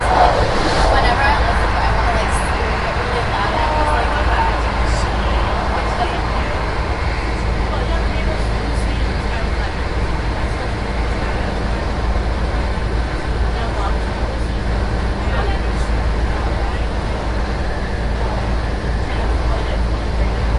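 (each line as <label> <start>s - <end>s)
Multiple people are talking continuously indoors. 0.0s - 20.6s
Static noise from a moving train. 0.0s - 20.6s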